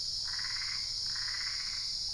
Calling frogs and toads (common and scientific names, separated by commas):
Boana albopunctata